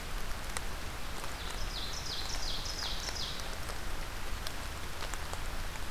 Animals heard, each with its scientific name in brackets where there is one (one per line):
Ovenbird (Seiurus aurocapilla)